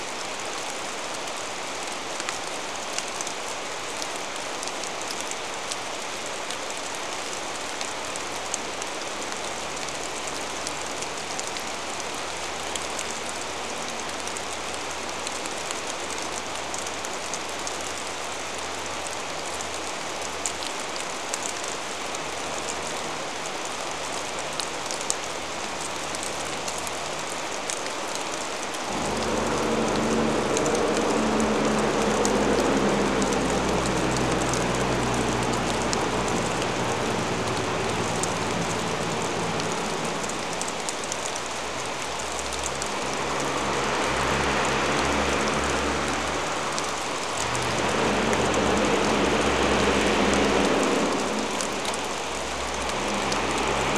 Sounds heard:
rain, vehicle engine

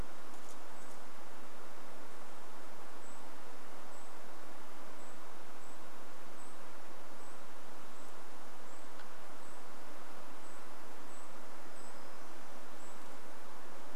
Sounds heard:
unidentified sound, Golden-crowned Kinglet call

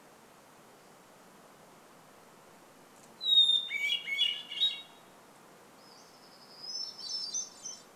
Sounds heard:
Hermit Thrush song, warbler song

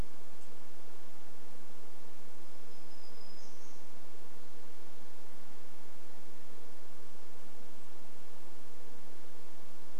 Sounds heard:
Golden-crowned Kinglet song, warbler song

